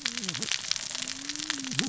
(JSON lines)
{"label": "biophony, cascading saw", "recorder": "SoundTrap 600 or HydroMoth"}